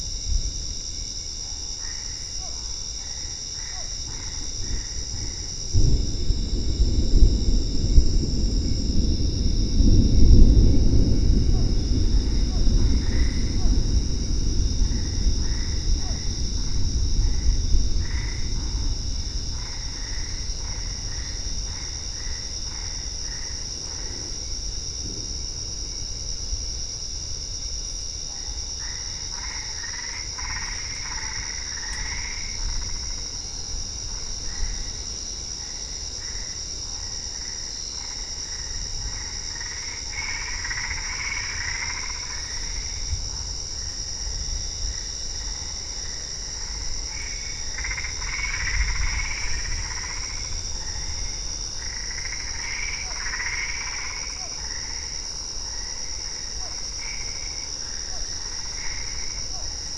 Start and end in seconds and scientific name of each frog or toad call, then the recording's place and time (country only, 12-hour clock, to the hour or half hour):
1.6	5.7	Boana albopunctata
2.4	2.7	Physalaemus cuvieri
3.6	4.0	Physalaemus cuvieri
11.5	13.9	Physalaemus cuvieri
12.8	24.8	Boana albopunctata
15.9	16.3	Physalaemus cuvieri
28.4	59.9	Boana albopunctata
53.0	59.8	Physalaemus cuvieri
Brazil, 11pm